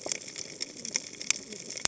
{"label": "biophony, cascading saw", "recorder": "HydroMoth"}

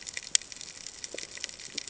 {"label": "ambient", "recorder": "HydroMoth"}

